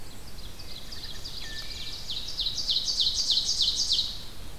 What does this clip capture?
Ovenbird, Wood Thrush